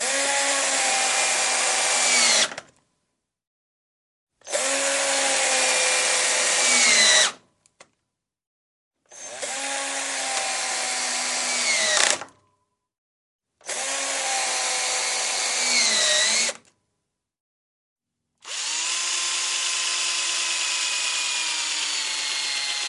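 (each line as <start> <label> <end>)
0.0 Mechanical buzzing from an electric screwdriver. 2.7
4.4 Mechanical buzzing from an electric screwdriver. 7.4
9.1 Mechanical buzzing from an electric screwdriver. 12.4
13.6 Mechanical buzzing from an electric screwdriver. 16.6
18.4 Mechanical buzzing from an electric screwdriver. 22.9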